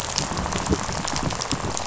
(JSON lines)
{"label": "biophony, rattle", "recorder": "SoundTrap 500"}